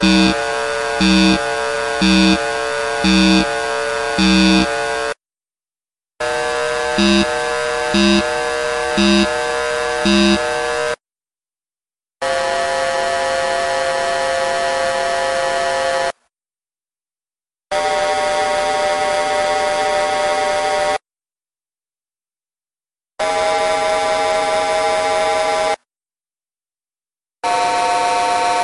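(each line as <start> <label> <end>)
0.0 A metallic thumping sound repeats rhythmically. 4.6
0.0 A metallic sound plays monotonously. 5.1
6.2 A metallic sound plays monotonously. 11.0
7.0 A metallic thumping sound repeats rhythmically. 10.4
12.2 A metallic sound plays monotonously. 16.1
17.7 A metallic sound plays monotonously. 21.0
23.2 A metallic sound plays monotonously. 25.8
27.4 A metallic sound plays monotonously. 28.6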